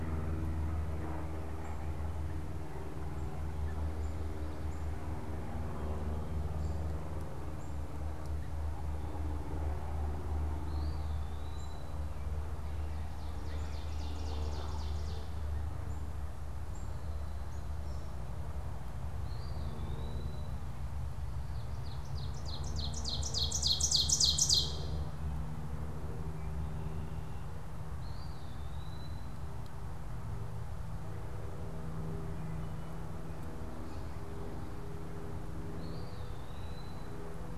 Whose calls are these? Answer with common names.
unidentified bird, Eastern Wood-Pewee, Ovenbird